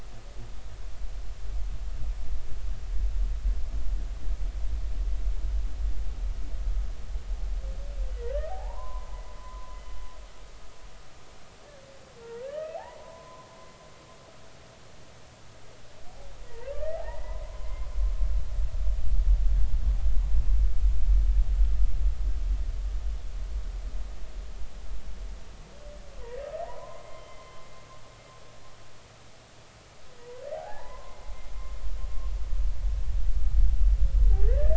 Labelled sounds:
8.5	9.8	humpback whale, 0.80 to 1.1 kHz
12.4	13.5	humpback whale, 0.93 to 3.2 kHz
16.5	17.9	humpback whale, 0.80 to 2.1 kHz
26.6	27.6	humpback whale, 0.80 to 3.2 kHz
30.5	31.2	humpback whale, 0.80 to 2.1 kHz
34.5	34.7	humpback whale, 1.4 to 1.9 kHz

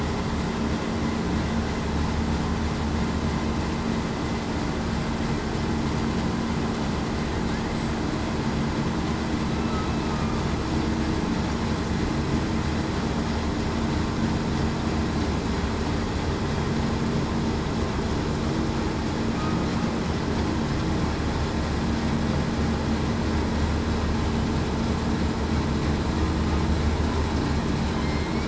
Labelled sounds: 28.0	28.4	killer whale, southern resident, 2.1 to 2.3 kHz

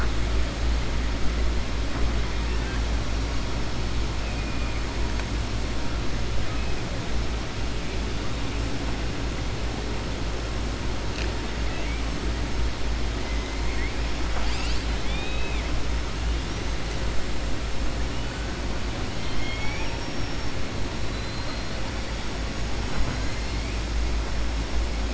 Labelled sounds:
2.4	2.8	killer whale, southern resident, 1.1 to 2.8 kHz
19.1	20.5	killer whale, southern resident, 0.86 to 6.5 kHz
21.1	21.7	killer whale, southern resident, 3.6 to 4.4 kHz

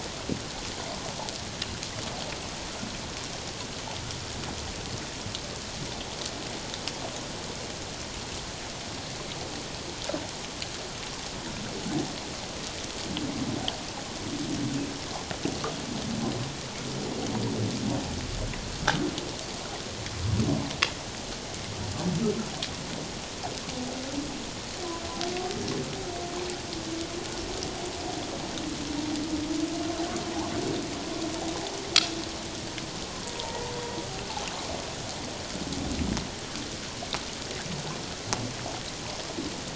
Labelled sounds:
33.2	33.6	humpback whale, 0.84 to 1.0 kHz

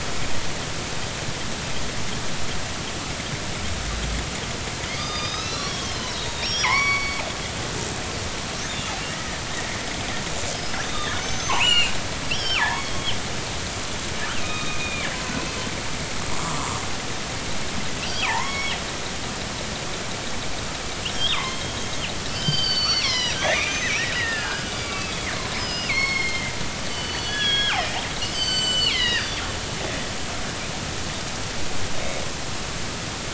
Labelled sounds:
5.0	7.3	killer whale, northern resident, G clan, 0.80 to 6.2 kHz
10.5	13.2	killer whale, northern resident, G clan, 0.80 to 7.4 kHz
14.4	15.1	killer whale, northern resident, G clan, 1.1 to 3.8 kHz
16.3	16.8	killer whale, northern resident, G clan, 0.93 to 1.4 kHz
18.1	18.7	killer whale, northern resident, G clan, 0.80 to 5.6 kHz
21.1	27.9	killer whale, northern resident, G clan, 0.83 to 6.6 kHz
28.3	29.4	killer whale, northern resident, G clan, 1.4 to 7.8 kHz
32.0	32.2	killer whale, northern resident, G clan, 3.6 to 3.8 kHz

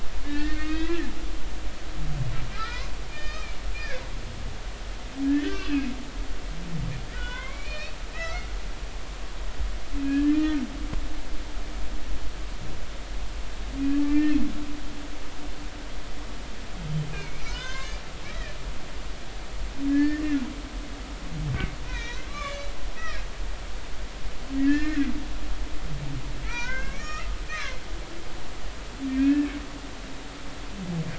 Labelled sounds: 0.2	1.0	humpback whale, 1.5 to 3.9 kHz
2.5	4.0	humpback whale, 1.2 to 5.2 kHz
5.2	5.9	humpback whale, 1.5 to 6.3 kHz
7.1	8.5	humpback whale, 0.93 to 4.6 kHz
10.0	10.6	humpback whale, 1.6 to 1.9 kHz
13.9	14.4	humpback whale, 1.7 to 2.8 kHz
17.1	18.0	humpback whale, 0.93 to 6.6 kHz
18.3	18.6	humpback whale, 1.7 to 2.0 kHz
19.9	20.4	humpback whale, 1.6 to 1.9 kHz
21.9	23.3	humpback whale, 1.1 to 4.1 kHz
24.6	25.1	humpback whale, 1.4 to 2.2 kHz
26.4	27.8	humpback whale, 0.90 to 2.8 kHz
29.1	29.5	humpback whale, 1.6 to 2.7 kHz

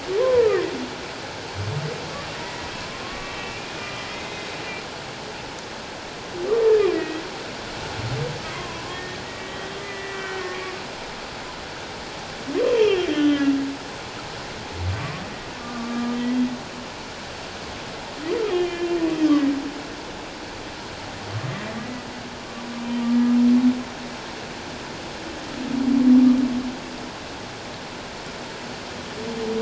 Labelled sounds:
0.2	0.7	humpback whale, 0.91 to 1.4 kHz
2.4	4.5	humpback whale, 1.0 to 2.8 kHz
6.7	7.2	humpback whale, 1.8 to 2.7 kHz
8.5	10.6	humpback whale, 0.97 to 3.1 kHz
13.1	13.5	humpback whale, 1.6 to 3.2 kHz
15.6	16.5	humpback whale, 1.1 to 3.3 kHz
18.5	19.6	humpback whale, 1.8 to 3.3 kHz

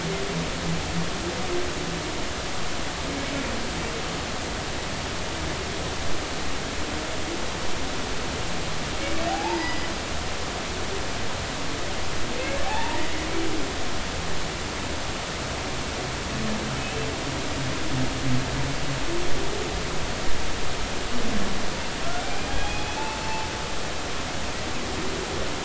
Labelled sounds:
9.3	9.9	humpback whale, 0.80 to 5.0 kHz
12.6	13.3	humpback whale, 0.80 to 2.0 kHz
22.5	23.5	humpback whale, 0.83 to 3.4 kHz

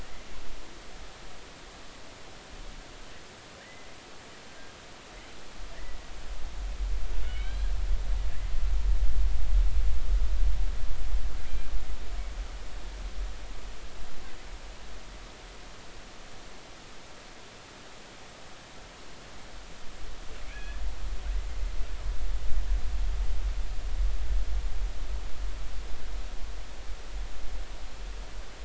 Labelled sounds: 3.6	3.9	killer whale, Bigg's (transient), 1.6 to 2.1 kHz
7.2	7.7	killer whale, Bigg's (transient), 1.4 to 4.2 kHz
11.5	11.7	killer whale, Bigg's (transient), 2.3 to 2.5 kHz
20.5	20.8	killer whale, Bigg's (transient), 1.6 to 2.6 kHz

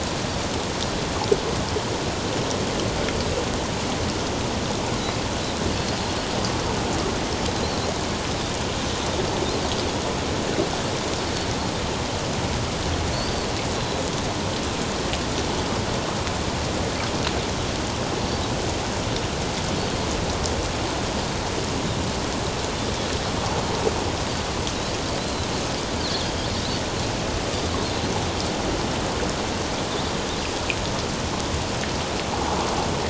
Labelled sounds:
13.1	14.0	Pacific white-sided dolphin, 3.9 to 4.8 kHz
25.2	25.5	Pacific white-sided dolphin, 3.9 to 4.3 kHz

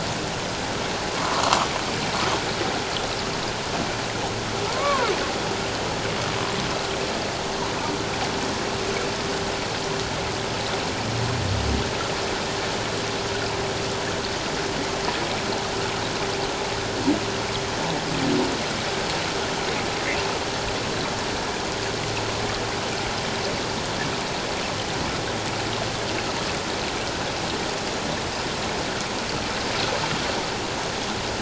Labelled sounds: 1.2	1.7	humpback whale, 0.94 to 1.5 kHz
4.7	5.1	humpback whale, 0.88 to 1.2 kHz

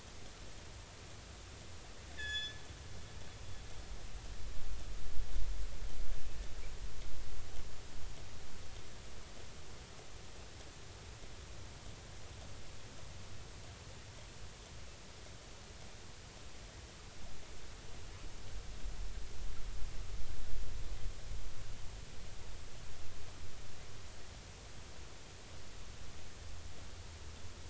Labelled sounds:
2.2	2.6	killer whale, northern resident, G clan, call N24ii, 1.6 to 7.0 kHz

